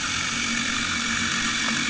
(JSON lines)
{"label": "anthrophony, boat engine", "recorder": "HydroMoth"}